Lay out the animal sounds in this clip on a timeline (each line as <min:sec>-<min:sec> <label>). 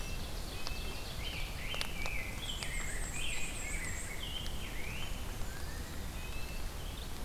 0:00.0-0:01.0 Red-breasted Nuthatch (Sitta canadensis)
0:00.0-0:01.7 Ovenbird (Seiurus aurocapilla)
0:01.0-0:05.2 Rose-breasted Grosbeak (Pheucticus ludovicianus)
0:02.2-0:04.1 Black-and-white Warbler (Mniotilta varia)
0:05.5-0:06.8 Eastern Wood-Pewee (Contopus virens)
0:06.0-0:06.6 Red-breasted Nuthatch (Sitta canadensis)